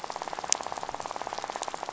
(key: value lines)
label: biophony, rattle
recorder: SoundTrap 500